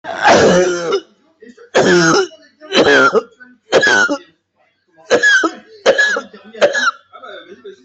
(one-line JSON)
{"expert_labels": [{"quality": "ok", "cough_type": "dry", "dyspnea": true, "wheezing": true, "stridor": false, "choking": true, "congestion": false, "nothing": false, "diagnosis": "lower respiratory tract infection", "severity": "severe"}]}